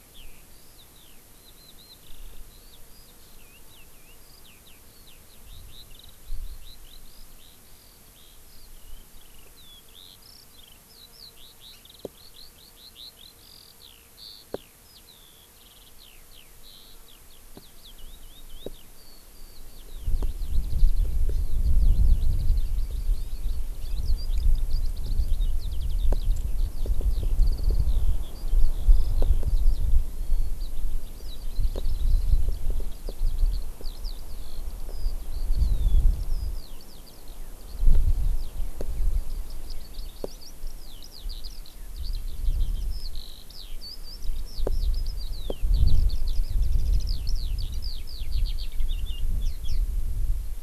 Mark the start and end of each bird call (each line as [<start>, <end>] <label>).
[0.00, 49.88] Eurasian Skylark (Alauda arvensis)